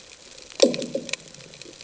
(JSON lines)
{"label": "anthrophony, bomb", "recorder": "HydroMoth"}